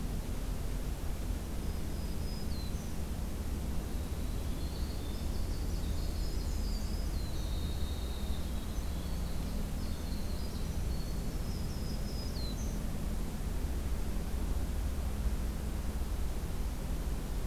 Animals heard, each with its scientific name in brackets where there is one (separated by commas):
Black-and-white Warbler (Mniotilta varia), Black-throated Green Warbler (Setophaga virens), Winter Wren (Troglodytes hiemalis)